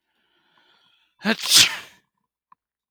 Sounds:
Sneeze